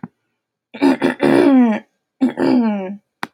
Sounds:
Throat clearing